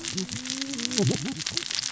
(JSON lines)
{"label": "biophony, cascading saw", "recorder": "SoundTrap 600 or HydroMoth"}